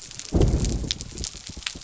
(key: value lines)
label: biophony
recorder: SoundTrap 300